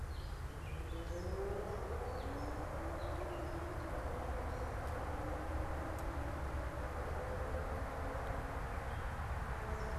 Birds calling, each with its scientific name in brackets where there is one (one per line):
unidentified bird